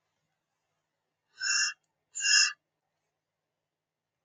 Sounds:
Sniff